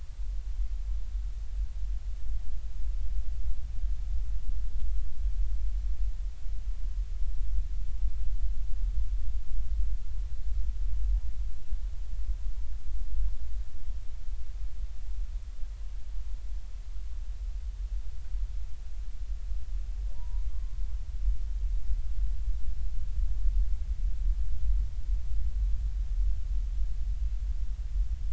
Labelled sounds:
20.1	20.8	humpback whale, 0.86 to 1.2 kHz

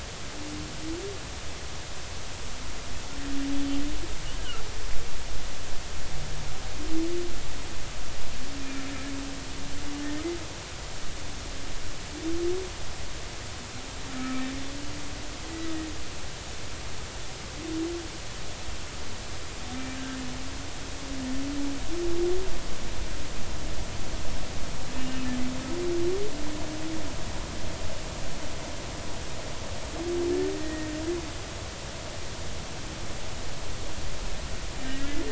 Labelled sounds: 4.4	4.6	humpback whale, 1.3 to 1.7 kHz
14.2	14.4	humpback whale, 1.2 to 1.3 kHz
25.0	25.2	humpback whale, 2.8 to 2.9 kHz
30.6	30.9	humpback whale, 1.8 to 1.9 kHz
34.8	35.2	humpback whale, 1.5 to 2.1 kHz

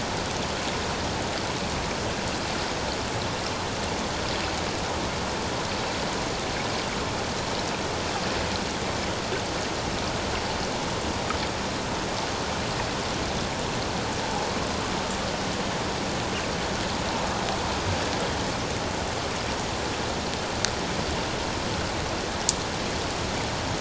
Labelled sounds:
14.2	14.5	water noise, 0.78 to 0.97 kHz

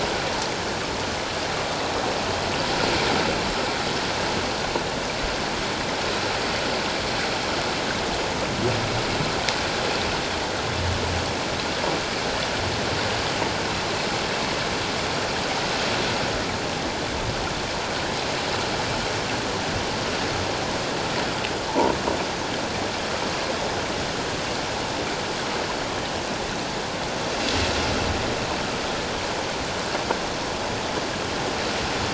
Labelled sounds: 21.7	21.9	croaking sound likely from a nearby submerged object, 0.81 to 1.0 kHz

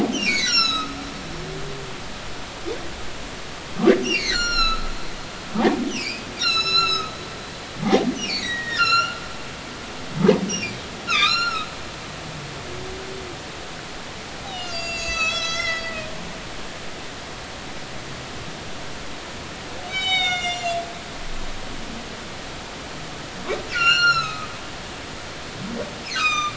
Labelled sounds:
0.1	1.0	humpback whale, 1.2 to 8.0 kHz
4.0	4.9	humpback whale, 1.2 to 7.4 kHz
5.9	7.1	humpback whale, 1.2 to 8.0 kHz
8.2	9.2	humpback whale, 1.3 to 7.0 kHz
10.5	10.7	humpback whale, 2.7 to 3.0 kHz
11.1	11.7	humpback whale, 1.1 to 7.1 kHz
14.5	15.9	humpback whale, 1.2 to 7.5 kHz
19.9	20.8	humpback whale, 1.4 to 8.0 kHz
23.7	24.5	humpback whale, 1.2 to 7.3 kHz
26.1	26.5	humpback whale, 1.1 to 7.6 kHz

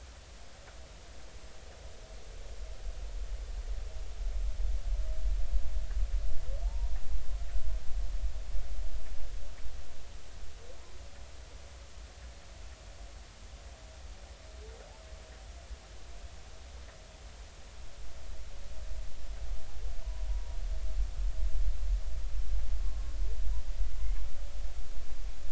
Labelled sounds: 6.6	7.0	humpback whale, 0.80 to 0.99 kHz
20.3	20.6	humpback whale, 0.90 to 0.99 kHz
22.8	23.1	humpback whale, 1.0 to 1.1 kHz

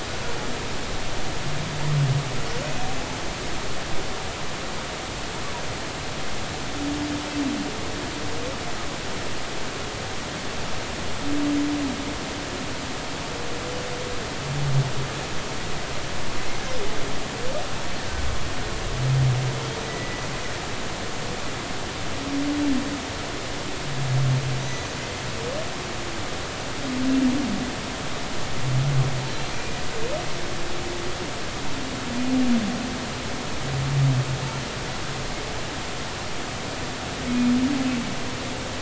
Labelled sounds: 3.1	3.3	humpback whale, 6.2 to 6.4 kHz
19.8	20.3	humpback whale, 1.9 to 2.0 kHz
24.7	24.9	humpback whale, 6.4 to 6.5 kHz

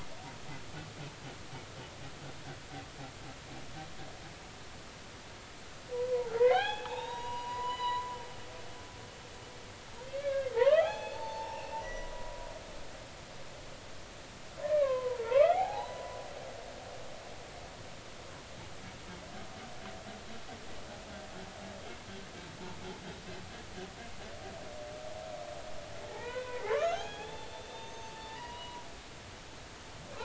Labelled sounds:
5.9	8.1	humpback whale, 0.80 to 7.0 kHz
10.0	12.4	humpback whale, 0.80 to 5.6 kHz
14.6	16.2	humpback whale, 0.80 to 2.5 kHz
26.1	28.8	humpback whale, 0.80 to 6.4 kHz

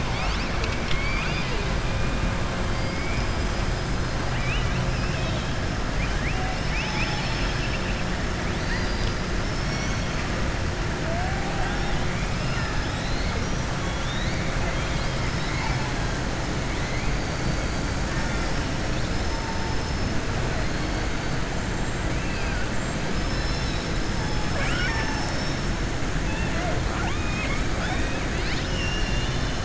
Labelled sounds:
5.0	5.5	killer whale, southern resident, 2.5 to 4.0 kHz
5.9	8.0	killer whale, southern resident, 0.74 to 6.2 kHz
9.4	10.1	killer whale, southern resident, 4.4 to 6.8 kHz
11.5	12.0	killer whale, southern resident, 0.69 to 5.6 kHz
12.3	13.7	killer whale, southern resident, 3.3 to 6.1 kHz
24.4	25.2	killer whale, southern resident, 0.60 to 3.5 kHz
26.8	27.6	killer whale, southern resident, 0.62 to 3.8 kHz
28.3	29.6	killer whale, southern resident, 2.1 to 5.9 kHz

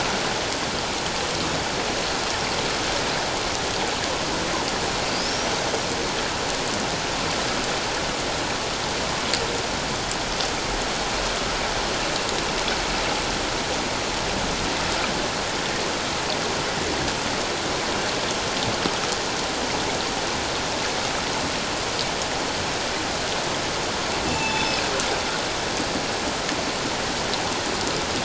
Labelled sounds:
5.1	5.5	killer whale, northern resident, G clan, 4.6 to 6.0 kHz
24.3	24.8	killer whale, northern resident, G clan, 2.6 to 7.9 kHz

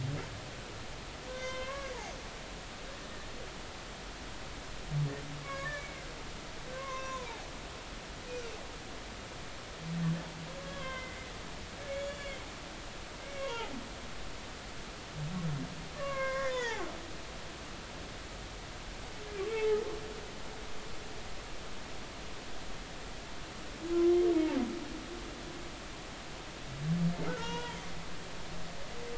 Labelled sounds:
1.3	1.9	humpback whale, 0.99 to 5.8 kHz
5.4	6.1	humpback whale, 1.0 to 2.4 kHz
6.7	7.5	humpback whale, 0.80 to 5.9 kHz
10.6	11.2	humpback whale, 0.99 to 3.2 kHz
11.9	12.4	humpback whale, 2.1 to 6.9 kHz
13.2	13.8	humpback whale, 0.80 to 3.3 kHz
15.9	16.8	humpback whale, 0.80 to 3.6 kHz
19.5	19.8	humpback whale, 0.80 to 2.3 kHz
27.3	27.8	humpback whale, 0.86 to 3.9 kHz

